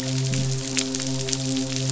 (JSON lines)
{"label": "biophony", "recorder": "SoundTrap 500"}
{"label": "biophony, midshipman", "recorder": "SoundTrap 500"}